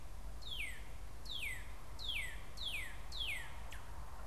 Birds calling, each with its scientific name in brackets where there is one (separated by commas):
Northern Cardinal (Cardinalis cardinalis)